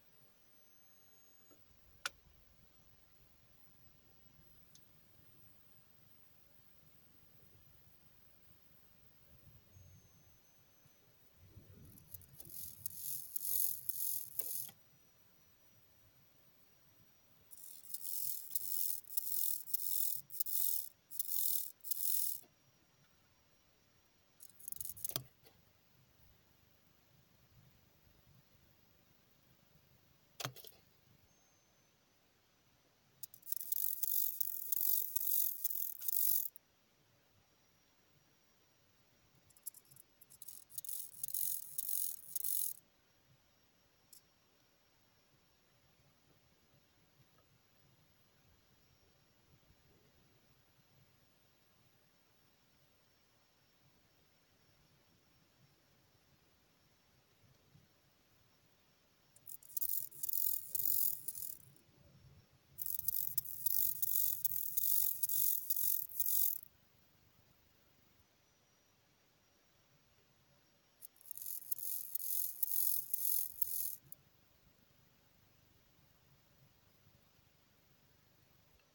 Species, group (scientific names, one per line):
Chorthippus mollis
Orthoptera